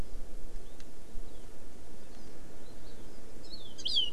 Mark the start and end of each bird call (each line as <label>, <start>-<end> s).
Hawaii Amakihi (Chlorodrepanis virens), 2.0-2.4 s